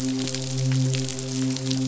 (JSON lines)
{"label": "biophony, midshipman", "recorder": "SoundTrap 500"}